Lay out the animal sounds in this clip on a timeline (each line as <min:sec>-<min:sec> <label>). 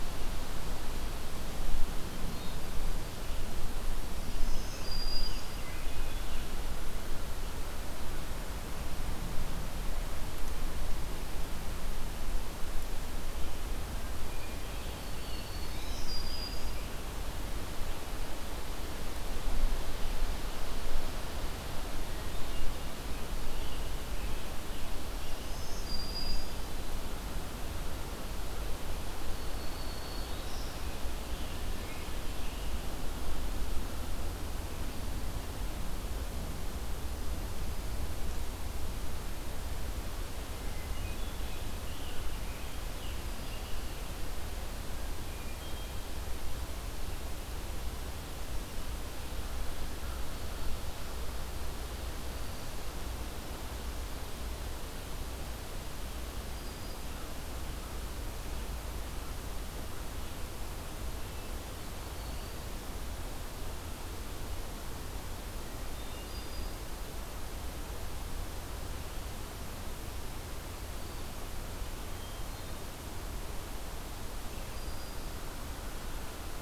0:04.1-0:06.1 Black-throated Green Warbler (Setophaga virens)
0:05.7-0:06.7 Hermit Thrush (Catharus guttatus)
0:13.9-0:17.1 Scarlet Tanager (Piranga olivacea)
0:14.4-0:17.1 Black-throated Green Warbler (Setophaga virens)
0:22.8-0:25.5 Scarlet Tanager (Piranga olivacea)
0:25.1-0:27.0 Black-throated Green Warbler (Setophaga virens)
0:29.3-0:31.1 Black-throated Green Warbler (Setophaga virens)
0:29.8-0:32.7 Scarlet Tanager (Piranga olivacea)
0:40.6-0:42.0 Hermit Thrush (Catharus guttatus)
0:41.4-0:44.1 Scarlet Tanager (Piranga olivacea)
0:45.3-0:46.2 Hermit Thrush (Catharus guttatus)
0:56.3-0:57.3 Black-throated Green Warbler (Setophaga virens)
1:01.8-1:03.0 Black-throated Green Warbler (Setophaga virens)
1:05.8-1:06.7 Hermit Thrush (Catharus guttatus)
1:06.1-1:07.0 Black-throated Green Warbler (Setophaga virens)
1:12.0-1:13.1 Hermit Thrush (Catharus guttatus)
1:14.5-1:15.5 Black-throated Green Warbler (Setophaga virens)